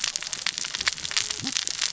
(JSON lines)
{"label": "biophony, cascading saw", "recorder": "SoundTrap 600 or HydroMoth"}